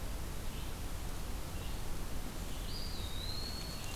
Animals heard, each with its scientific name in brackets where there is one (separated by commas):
Red-eyed Vireo (Vireo olivaceus), Eastern Wood-Pewee (Contopus virens)